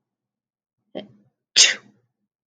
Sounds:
Sneeze